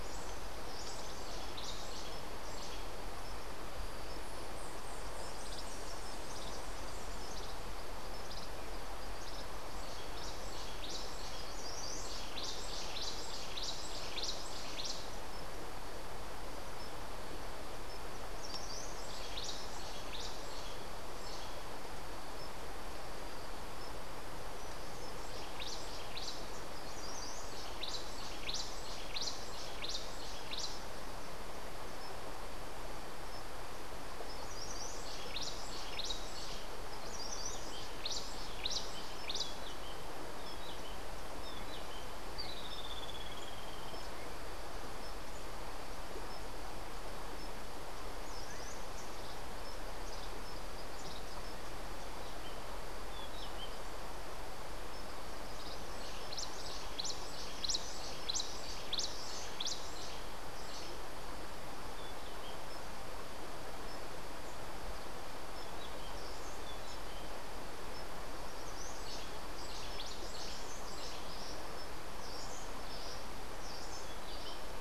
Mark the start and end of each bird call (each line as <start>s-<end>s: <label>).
0.0s-1.9s: Cabanis's Wren (Cantorchilus modestus)
5.3s-15.0s: Cabanis's Wren (Cantorchilus modestus)
18.4s-30.9s: Cabanis's Wren (Cantorchilus modestus)
33.8s-39.9s: Cabanis's Wren (Cantorchilus modestus)
42.3s-44.0s: Streak-headed Woodcreeper (Lepidocolaptes souleyetii)
48.1s-60.0s: Cabanis's Wren (Cantorchilus modestus)
68.8s-74.7s: Cabanis's Wren (Cantorchilus modestus)